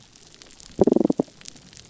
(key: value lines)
label: biophony, damselfish
recorder: SoundTrap 300